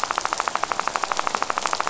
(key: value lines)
label: biophony, rattle
recorder: SoundTrap 500